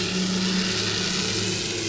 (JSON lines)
{"label": "anthrophony, boat engine", "recorder": "SoundTrap 500"}